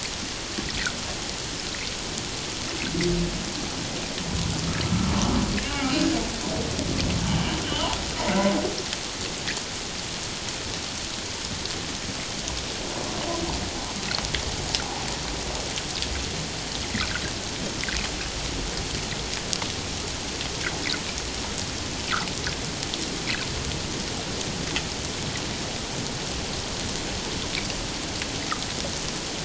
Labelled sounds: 5.6	6.1	humpback whale, 0.78 to 2.9 kHz
7.6	8.6	humpback whale, 1.9 to 3.3 kHz

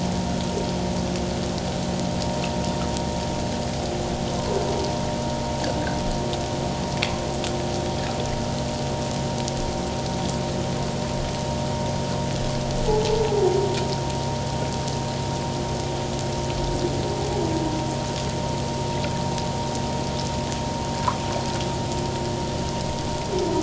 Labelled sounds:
4.3	4.6	humpback whale, 0.97 to 1.1 kHz
12.8	13.2	humpback whale, 0.81 to 0.91 kHz

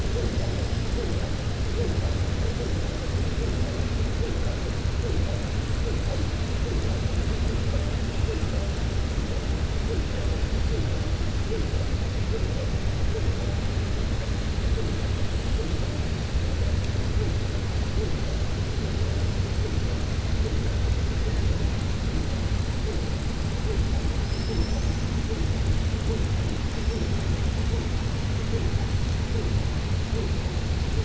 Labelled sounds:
24.2	25.0	killer whale, southern resident, 4.3 to 6.4 kHz

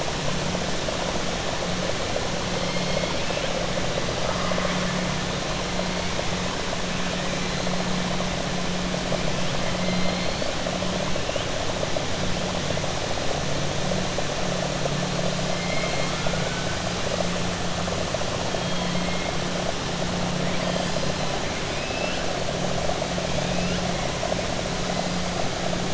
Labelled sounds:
4.2	4.8	killer whale, 0.59 to 2.3 kHz
9.8	10.5	killer whale, 2.1 to 4.6 kHz
15.5	16.7	killer whale, 0.69 to 3.2 kHz
21.6	22.2	killer whale, 1.7 to 3.3 kHz

